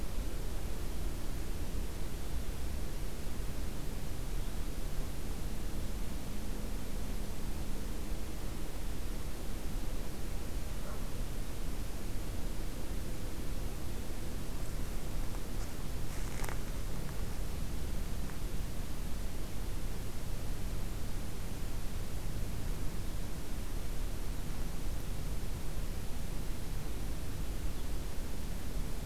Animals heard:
forest ambience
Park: Acadia National Park